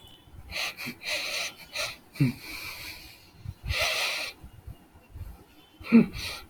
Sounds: Sigh